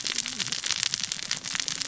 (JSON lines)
{"label": "biophony, cascading saw", "recorder": "SoundTrap 600 or HydroMoth"}